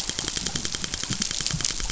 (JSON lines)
{"label": "biophony, dolphin", "recorder": "SoundTrap 500"}